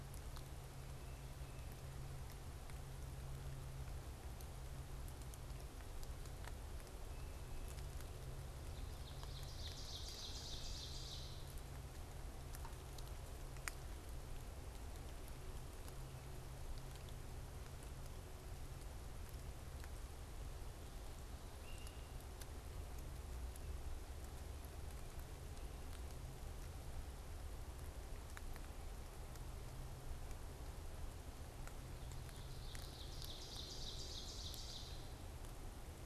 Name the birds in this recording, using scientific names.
Seiurus aurocapilla, Myiarchus crinitus